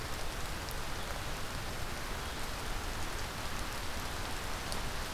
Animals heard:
forest ambience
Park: Marsh-Billings-Rockefeller National Historical Park